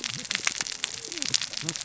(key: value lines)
label: biophony, cascading saw
recorder: SoundTrap 600 or HydroMoth